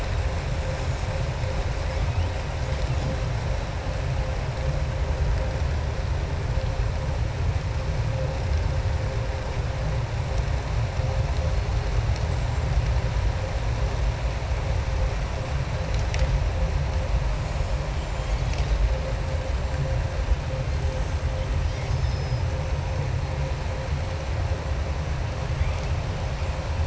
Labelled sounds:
21.6	22.4	killer whale, southern resident, 3.1 to 6.7 kHz

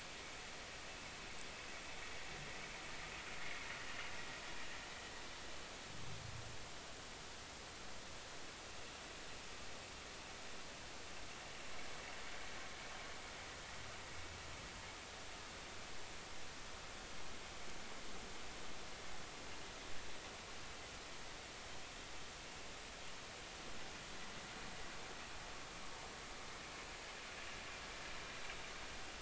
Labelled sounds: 27.4	27.6	vessel noise, 2.75 to 2.85 kHz

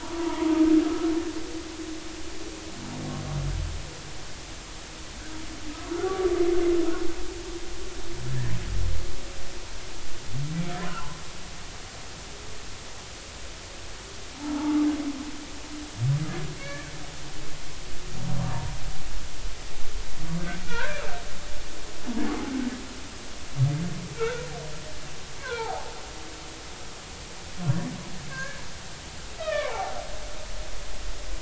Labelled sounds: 0.0	0.6	humpback whale, 0.86 to 1.2 kHz
5.9	6.3	humpback whale, 1.1 to 1.6 kHz
14.5	14.8	humpback whale, 0.83 to 0.99 kHz
16.6	17.0	humpback whale, 1.5 to 2.4 kHz
20.6	21.0	humpback whale, 1.3 to 1.8 kHz
22.3	22.5	humpback whale, 0.80 to 0.90 kHz
24.2	24.5	humpback whale, 1.2 to 1.6 kHz
25.4	25.9	humpback whale, 0.80 to 1.7 kHz
28.3	30.0	humpback whale, 0.80 to 2.6 kHz

